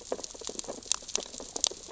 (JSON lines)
{"label": "biophony, sea urchins (Echinidae)", "recorder": "SoundTrap 600 or HydroMoth"}